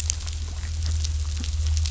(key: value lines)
label: anthrophony, boat engine
recorder: SoundTrap 500